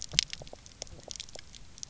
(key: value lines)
label: biophony, pulse
recorder: SoundTrap 300